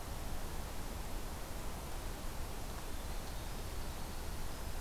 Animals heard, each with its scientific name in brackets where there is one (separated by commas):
Winter Wren (Troglodytes hiemalis)